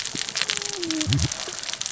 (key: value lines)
label: biophony, cascading saw
recorder: SoundTrap 600 or HydroMoth